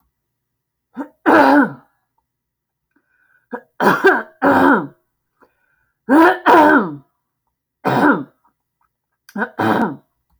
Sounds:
Throat clearing